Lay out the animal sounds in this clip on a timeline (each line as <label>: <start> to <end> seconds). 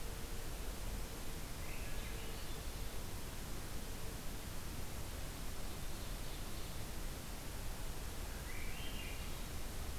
Swainson's Thrush (Catharus ustulatus): 1.7 to 3.0 seconds
Ovenbird (Seiurus aurocapilla): 5.6 to 6.9 seconds
Swainson's Thrush (Catharus ustulatus): 8.3 to 9.6 seconds